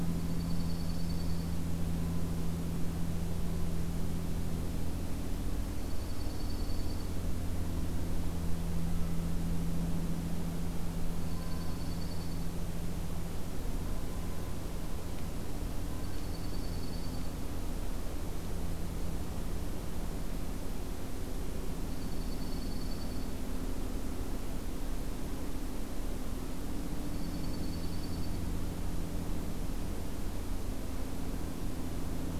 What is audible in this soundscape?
Dark-eyed Junco